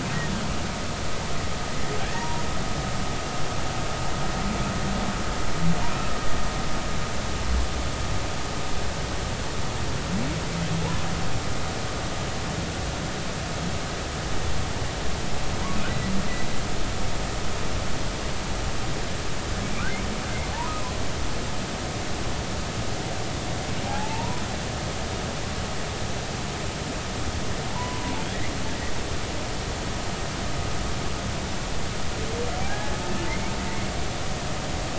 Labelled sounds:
2.0	2.5	humpback whale, 0.86 to 2.0 kHz
15.9	16.1	humpback whale, 3.9 to 4.2 kHz
23.9	24.4	humpback whale, 0.80 to 1.0 kHz
27.7	28.1	humpback whale, 0.86 to 1.1 kHz
32.6	33.5	humpback whale, 0.80 to 2.3 kHz

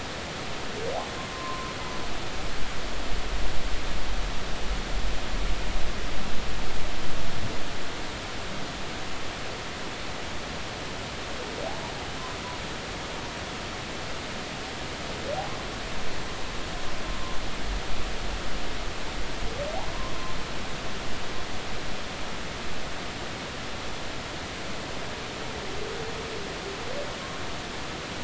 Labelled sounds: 1.3	1.7	humpback whale, 0.93 to 1.1 kHz

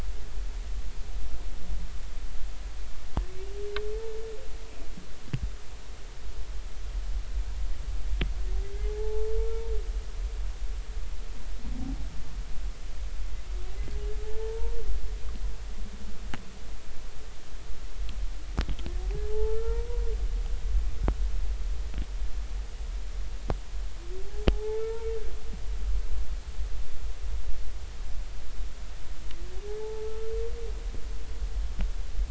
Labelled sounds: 8.9	9.3	humpback whale, 0.80 to 0.96 kHz
14.2	14.7	humpback whale, 0.83 to 1.8 kHz
19.3	19.9	humpback whale, 0.80 to 1.4 kHz
24.2	25.1	humpback whale, 0.80 to 2.3 kHz
29.8	30.1	humpback whale, 0.80 to 0.93 kHz

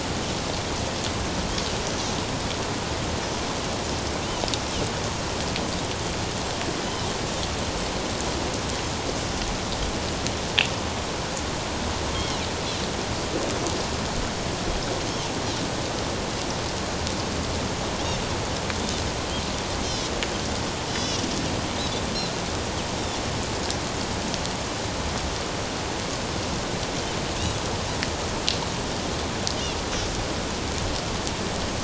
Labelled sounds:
12.1	12.4	Pacific white-sided dolphin, 2.8 to 3.3 kHz
20.9	21.2	Pacific white-sided dolphin, 2.7 to 6.0 kHz

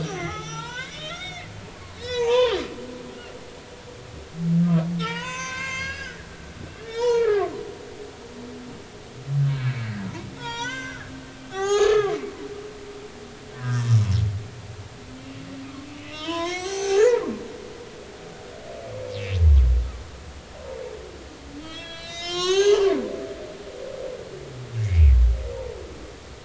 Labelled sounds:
0.0	1.5	humpback whale, 0.80 to 6.3 kHz
2.0	2.6	humpback whale, 0.80 to 4.1 kHz
4.6	6.2	humpback whale, 0.86 to 7.6 kHz
6.8	7.6	humpback whale, 0.86 to 5.4 kHz
9.5	11.0	humpback whale, 0.86 to 7.3 kHz
11.5	12.2	humpback whale, 0.80 to 7.1 kHz
13.6	13.8	humpback whale, 1.2 to 1.7 kHz
16.0	17.2	humpback whale, 0.80 to 7.9 kHz
21.6	22.9	humpback whale, 0.80 to 7.6 kHz
24.8	25.1	humpback whale, 2.0 to 2.6 kHz

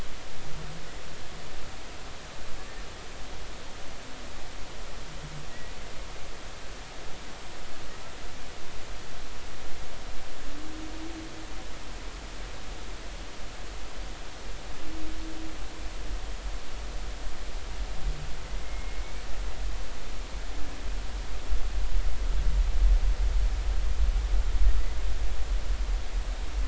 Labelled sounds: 5.5	5.8	humpback whale, 1.9 to 2.0 kHz
18.6	19.1	humpback whale, 2.1 to 2.3 kHz

